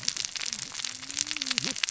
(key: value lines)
label: biophony, cascading saw
recorder: SoundTrap 600 or HydroMoth